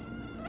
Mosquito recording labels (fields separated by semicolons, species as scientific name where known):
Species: Aedes aegypti; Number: one; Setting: insect culture